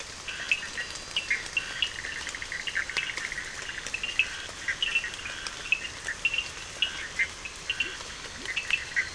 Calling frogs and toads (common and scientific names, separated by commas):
two-colored oval frog (Elachistocleis bicolor), Bischoff's tree frog (Boana bischoffi), Scinax perereca, Cochran's lime tree frog (Sphaenorhynchus surdus), Leptodactylus latrans